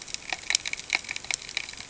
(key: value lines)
label: ambient
recorder: HydroMoth